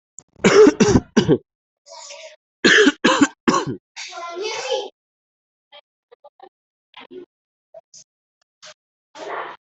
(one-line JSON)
{"expert_labels": [{"quality": "ok", "cough_type": "dry", "dyspnea": false, "wheezing": false, "stridor": false, "choking": false, "congestion": false, "nothing": true, "diagnosis": "COVID-19", "severity": "mild"}]}